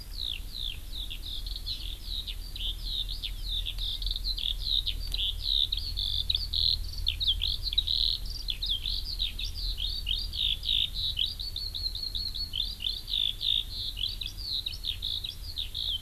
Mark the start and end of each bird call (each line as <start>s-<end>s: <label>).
0.0s-16.0s: Eurasian Skylark (Alauda arvensis)
1.6s-1.8s: Hawaii Amakihi (Chlorodrepanis virens)